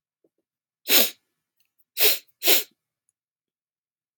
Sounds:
Sniff